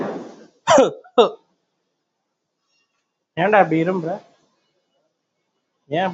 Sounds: Cough